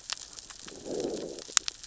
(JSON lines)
{"label": "biophony, growl", "recorder": "SoundTrap 600 or HydroMoth"}